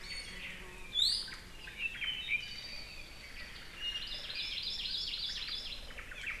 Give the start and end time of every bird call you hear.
[0.00, 0.60] Iiwi (Drepanis coccinea)
[0.90, 1.40] Iiwi (Drepanis coccinea)
[1.70, 3.40] Apapane (Himatione sanguinea)
[3.90, 6.00] Hawaii Amakihi (Chlorodrepanis virens)
[5.90, 6.40] Omao (Myadestes obscurus)

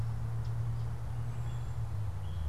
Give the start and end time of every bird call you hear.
[0.36, 2.48] Common Yellowthroat (Geothlypis trichas)
[0.86, 2.16] Cedar Waxwing (Bombycilla cedrorum)

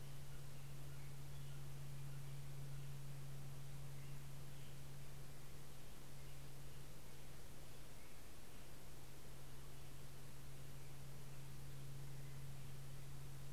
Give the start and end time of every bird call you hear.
[0.00, 3.35] Steller's Jay (Cyanocitta stelleri)
[0.00, 13.52] American Robin (Turdus migratorius)

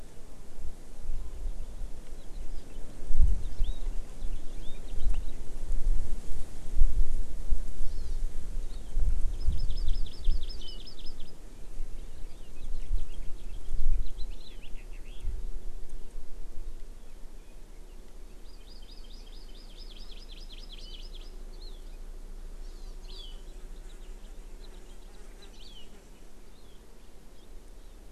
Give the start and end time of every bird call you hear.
[7.80, 8.20] Hawaii Amakihi (Chlorodrepanis virens)
[9.30, 11.30] Hawaii Amakihi (Chlorodrepanis virens)
[12.30, 15.30] House Finch (Haemorhous mexicanus)
[18.40, 21.30] Hawaii Amakihi (Chlorodrepanis virens)
[22.60, 22.90] Hawaii Amakihi (Chlorodrepanis virens)
[23.40, 25.60] House Finch (Haemorhous mexicanus)

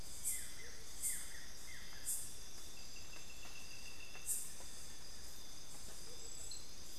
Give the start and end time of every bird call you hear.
[0.00, 2.30] Buff-throated Woodcreeper (Xiphorhynchus guttatus)
[0.50, 0.90] Amazonian Motmot (Momotus momota)
[6.00, 6.30] Amazonian Motmot (Momotus momota)

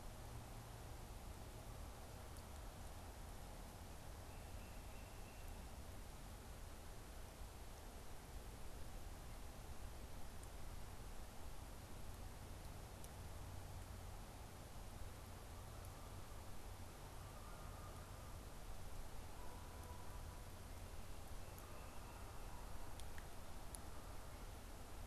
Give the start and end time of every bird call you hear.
[4.31, 5.51] Tufted Titmouse (Baeolophus bicolor)
[15.31, 25.01] Canada Goose (Branta canadensis)

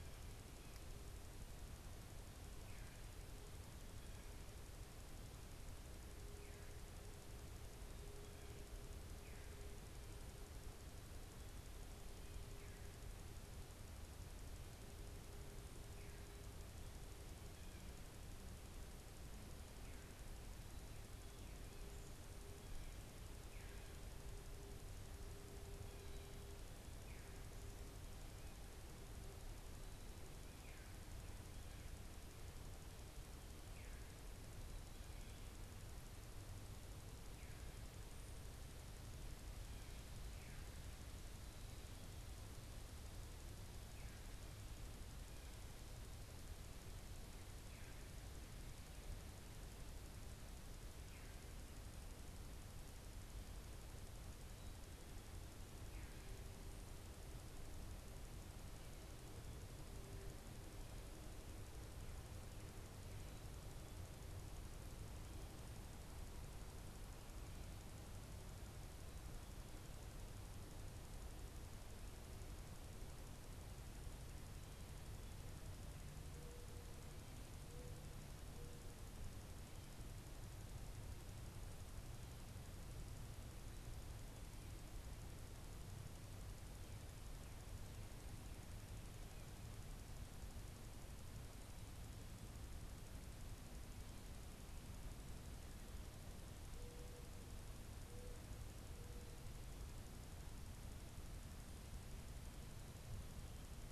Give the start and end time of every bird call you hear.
[76.08, 79.08] Mourning Dove (Zenaida macroura)
[96.68, 99.48] Mourning Dove (Zenaida macroura)

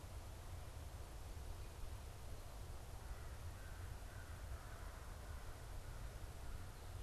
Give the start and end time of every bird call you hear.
[2.56, 6.76] American Crow (Corvus brachyrhynchos)

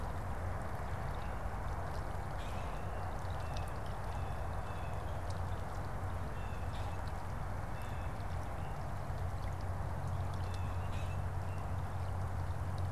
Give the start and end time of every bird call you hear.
[2.17, 3.07] Common Grackle (Quiscalus quiscula)
[3.07, 5.37] Blue Jay (Cyanocitta cristata)
[6.07, 8.47] Blue Jay (Cyanocitta cristata)
[6.37, 7.27] Common Grackle (Quiscalus quiscula)
[10.27, 10.87] Blue Jay (Cyanocitta cristata)
[10.77, 11.27] Common Grackle (Quiscalus quiscula)

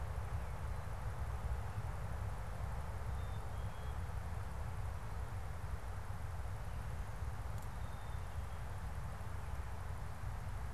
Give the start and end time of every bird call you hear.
[2.98, 4.08] Black-capped Chickadee (Poecile atricapillus)
[7.48, 8.88] Black-capped Chickadee (Poecile atricapillus)

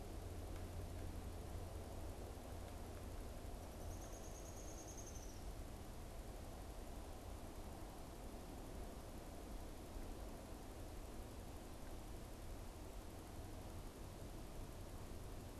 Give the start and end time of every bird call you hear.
[3.61, 5.61] Downy Woodpecker (Dryobates pubescens)

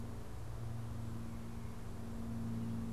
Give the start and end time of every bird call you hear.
[0.00, 2.93] Gray Catbird (Dumetella carolinensis)

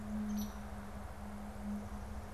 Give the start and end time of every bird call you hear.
[0.24, 0.45] Downy Woodpecker (Dryobates pubescens)
[0.24, 0.65] Hairy Woodpecker (Dryobates villosus)

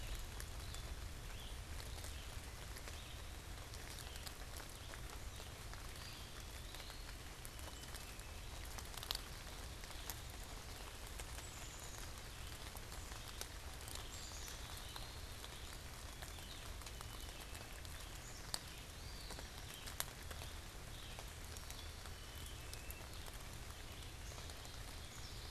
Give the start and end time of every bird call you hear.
[0.00, 25.50] Red-eyed Vireo (Vireo olivaceus)
[5.82, 7.32] Eastern Wood-Pewee (Contopus virens)
[7.42, 8.52] Black-capped Chickadee (Poecile atricapillus)
[11.22, 12.32] Black-capped Chickadee (Poecile atricapillus)
[13.92, 14.82] Black-capped Chickadee (Poecile atricapillus)
[14.02, 15.52] Eastern Wood-Pewee (Contopus virens)
[16.52, 17.92] Black-capped Chickadee (Poecile atricapillus)
[18.82, 19.72] Eastern Wood-Pewee (Contopus virens)
[21.72, 23.52] Black-capped Chickadee (Poecile atricapillus)
[24.12, 25.50] unidentified bird

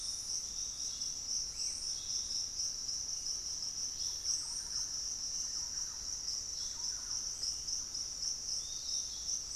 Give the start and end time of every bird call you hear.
[0.00, 0.69] Fasciated Antshrike (Cymbilaimus lineatus)
[0.00, 9.55] Piratic Flycatcher (Legatus leucophaius)
[1.49, 1.89] Screaming Piha (Lipaugus vociferans)
[2.69, 9.55] Thrush-like Wren (Campylorhynchus turdinus)
[2.99, 6.99] Buff-throated Woodcreeper (Xiphorhynchus guttatus)

